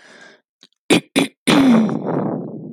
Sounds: Throat clearing